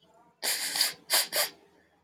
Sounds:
Sniff